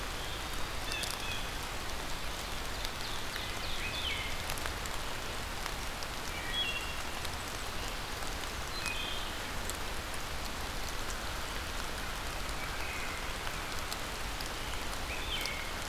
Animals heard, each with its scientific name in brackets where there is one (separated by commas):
Wood Thrush (Hylocichla mustelina), Ovenbird (Seiurus aurocapilla), Blue Jay (Cyanocitta cristata)